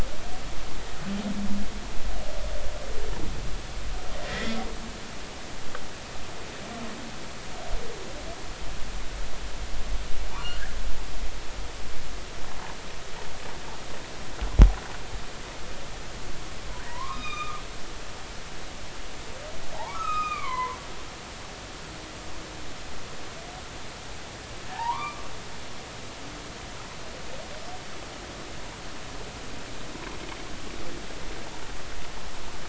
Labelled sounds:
4.2	4.6	humpback whale, 1.7 to 2.1 kHz
10.3	10.8	humpback whale, 0.86 to 1.9 kHz
16.9	17.6	humpback whale, 0.90 to 5.1 kHz
19.8	20.8	humpback whale, 0.80 to 3.9 kHz
24.7	25.3	humpback whale, 0.80 to 1.3 kHz

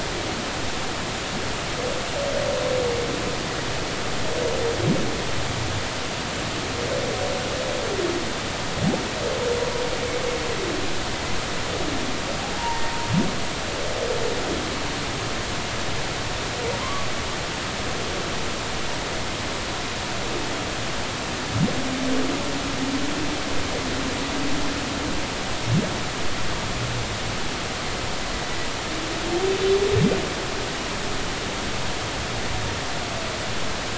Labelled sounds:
12.6	12.9	humpback whale, 0.83 to 1.0 kHz
16.8	17.1	humpback whale, 0.96 to 1.2 kHz

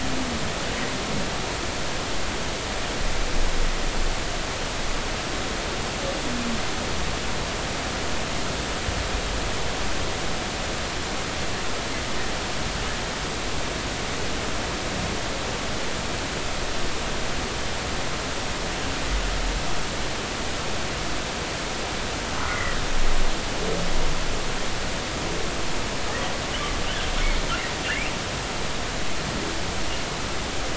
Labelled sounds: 22.4	22.8	humpback whale, 1.8 to 2.2 kHz

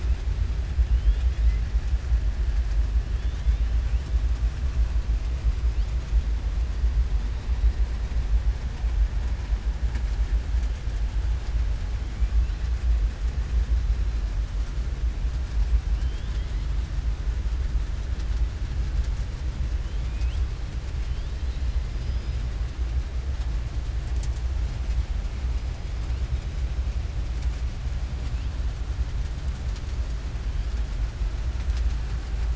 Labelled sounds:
0.9	1.6	killer whale, southern resident, 2.0 to 4.4 kHz
15.9	16.5	killer whale, southern resident, 2.7 to 4.4 kHz
21.9	22.4	killer whale, southern resident, 4.1 to 5.6 kHz

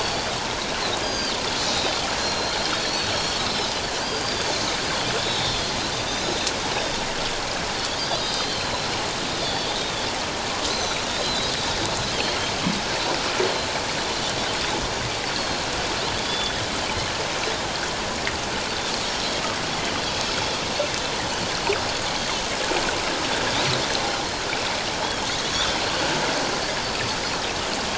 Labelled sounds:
0.0	0.3	Pacific white-sided dolphin, 4.4 to 4.7 kHz
1.0	1.9	Pacific white-sided dolphin, 1.5 to 5.1 kHz
2.2	3.5	Pacific white-sided dolphin, 3.2 to 7.1 kHz
4.0	4.4	Pacific white-sided dolphin, 4.6 to 4.9 kHz
5.2	6.5	Pacific white-sided dolphin, 3.4 to 4.1 kHz
8.0	8.7	Pacific white-sided dolphin, 3.0 to 5.1 kHz
9.4	10.1	Pacific white-sided dolphin, 3.2 to 4.8 kHz
10.7	11.5	Pacific white-sided dolphin, 3.8 to 6.3 kHz
15.3	15.6	Pacific white-sided dolphin, 4.1 to 4.6 kHz
16.2	16.5	Pacific white-sided dolphin, 3.3 to 3.5 kHz
20.1	20.4	Pacific white-sided dolphin, 5.2 to 5.3 kHz
25.0	25.3	Pacific white-sided dolphin, 3.1 to 3.5 kHz

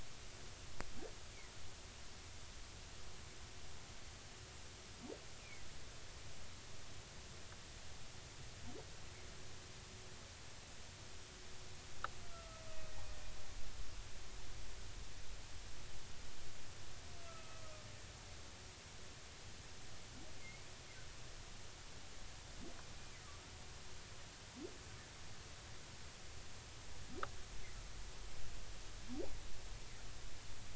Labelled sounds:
5.4	5.7	humpback whale, 1.9 to 2.6 kHz
12.3	12.6	humpback whale, 1.2 to 1.4 kHz
17.2	17.6	humpback whale, 1.2 to 2.6 kHz
20.4	20.7	humpback whale, 2.0 to 2.3 kHz

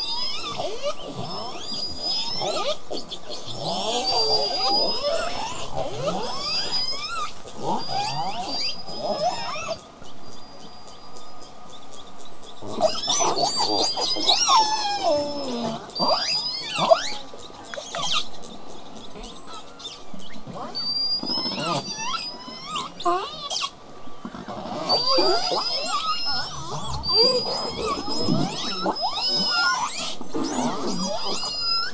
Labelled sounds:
0.0	0.6	killer whale, southern resident, L pod, call S19, 0.35 to 8.0 kHz
0.6	1.0	killer whale, southern resident, L pod, call S31, 0.22 to 8.0 kHz
1.2	2.8	killer whale, southern resident, L pod, call S19, 0.18 to 8.0 kHz
1.3	1.6	killer whale, southern resident, buzz, 7.9 to 8.0 kHz
2.3	2.8	killer whale, southern resident, L pod, call S33, 0.28 to 7.8 kHz
2.9	3.5	killer whale, southern resident, 0.18 to 5.1 kHz
3.6	4.1	killer whale, southern resident, buzz, 0.20 to 8.0 kHz
4.1	5.6	killer whale, southern resident, L pod, call S19, 0.22 to 8.0 kHz
5.7	6.3	killer whale, southern resident, L pod, call S31, 0.20 to 7.3 kHz
6.2	7.3	killer whale, southern resident, L pod, call S19, 0.16 to 8.0 kHz
7.6	9.8	killer whale, southern resident, L pod, call S19, 0.12 to 8.0 kHz
9.8	13.3	killer whale, southern resident, L pod, call S18, 0.20 to 8.0 kHz
13.3	14.6	killer whale, southern resident, L pod, call S19, 0.16 to 8.0 kHz
14.1	15.9	killer whale, southern resident, call S01, 0.08 to 8.0 kHz
15.9	17.3	killer whale, southern resident, L pod, call S19, 0.09 to 8.0 kHz
17.7	18.3	killer whale, southern resident, L pod, call S33, 0.57 to 8.0 kHz
18.3	20.9	killer whale, southern resident, L pod, call S18, 0.13 to 8.0 kHz
20.7	22.9	killer whale, southern resident, L pod, call S19, 0.72 to 8.0 kHz
23.0	23.7	killer whale, southern resident, L pod, call S18, 0.08 to 8.0 kHz
24.1	27.0	killer whale, southern resident, 0 to 8.0 kHz
27.0	28.9	killer whale, southern resident, L pod, call S19, 0 to 8.0 kHz
29.0	30.2	killer whale, southern resident, call S19, 0.19 to 8.0 kHz
30.2	30.9	killer whale, southern resident, 0.12 to 8.0 kHz
30.9	31.9	killer whale, southern resident, L pod, call S19, 0.21 to 8.0 kHz

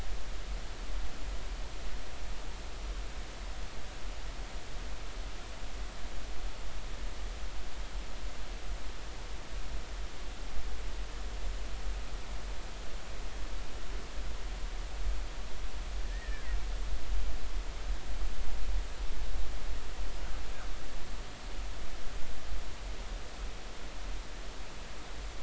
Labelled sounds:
16.0	16.5	killer whale, Bigg's (transient), 1.6 to 2.0 kHz

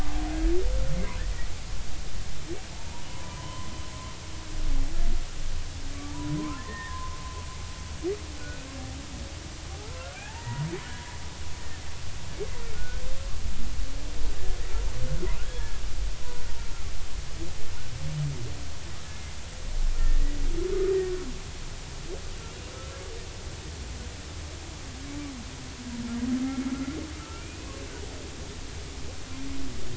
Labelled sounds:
3.1	3.7	humpback whale, 0.93 to 3.1 kHz
6.1	7.1	humpback whale, 0.80 to 2.0 kHz
9.8	10.7	humpback whale, 0.80 to 2.0 kHz
12.7	13.0	humpback whale, 1.4 to 1.5 kHz
15.4	15.8	humpback whale, 1.6 to 1.8 kHz
19.1	19.4	humpback whale, 2.0 to 2.2 kHz
22.7	23.0	humpback whale, 1.3 to 1.4 kHz
26.4	26.7	humpback whale, 2.1 to 2.2 kHz
27.2	27.8	humpback whale, 1.2 to 2.7 kHz

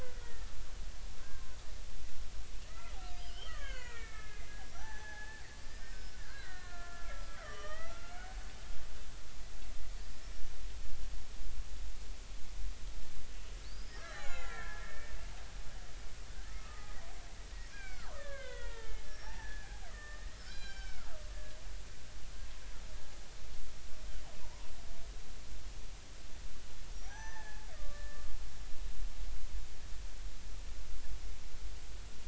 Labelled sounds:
0.1	1.6	killer whale, Bigg's (transient), 0.99 to 2.0 kHz
2.6	8.2	killer whale, Bigg's (transient), 0.80 to 6.5 kHz
13.6	15.2	killer whale, Bigg's (transient), 0.96 to 7.1 kHz
16.5	17.0	killer whale, Bigg's (transient), 1.1 to 1.3 kHz
17.7	21.2	killer whale, Bigg's (transient), 0.80 to 7.3 kHz
24.4	24.7	killer whale, Bigg's (transient), 0.86 to 1.1 kHz
26.9	28.2	killer whale, Bigg's (transient), 0.80 to 6.1 kHz

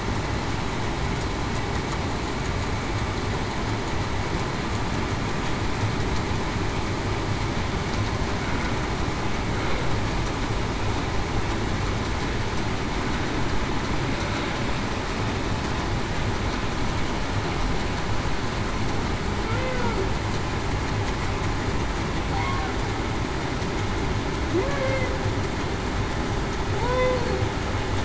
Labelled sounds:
19.5	19.8	humpback whale, 0.42 to 0.54 kHz
24.6	25.1	humpback whale, 0.49 to 0.58 kHz
26.8	27.2	humpback whale, 0.87 to 1.1 kHz

